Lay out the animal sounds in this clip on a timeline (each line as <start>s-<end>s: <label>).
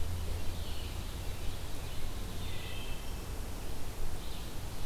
0.0s-2.8s: Scarlet Tanager (Piranga olivacea)
2.6s-3.2s: Wood Thrush (Hylocichla mustelina)